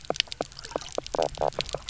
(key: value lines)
label: biophony, knock croak
recorder: SoundTrap 300